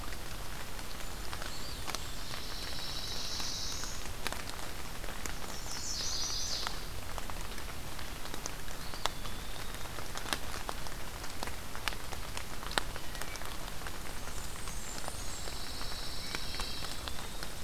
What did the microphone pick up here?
Blackburnian Warbler, Eastern Wood-Pewee, Pine Warbler, Black-throated Blue Warbler, Chestnut-sided Warbler, Wood Thrush